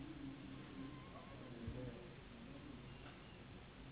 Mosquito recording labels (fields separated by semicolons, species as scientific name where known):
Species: Anopheles gambiae s.s.; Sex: female; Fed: unfed; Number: one; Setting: insect culture